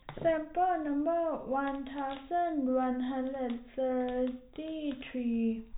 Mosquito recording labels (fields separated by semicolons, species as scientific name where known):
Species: no mosquito; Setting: cup